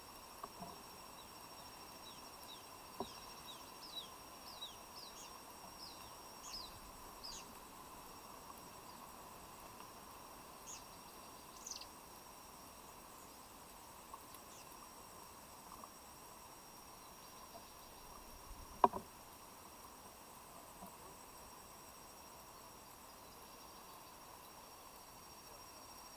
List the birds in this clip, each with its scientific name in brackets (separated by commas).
Kikuyu White-eye (Zosterops kikuyuensis)